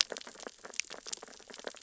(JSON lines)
{"label": "biophony, sea urchins (Echinidae)", "recorder": "SoundTrap 600 or HydroMoth"}